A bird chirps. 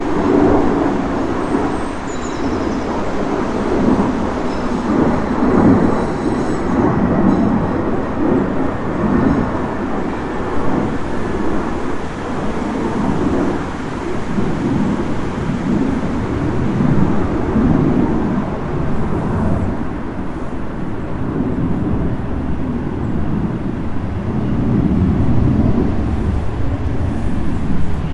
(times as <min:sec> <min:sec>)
0:01.6 0:03.8